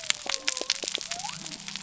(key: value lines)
label: biophony
recorder: SoundTrap 300